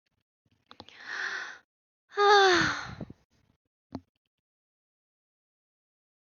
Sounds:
Sigh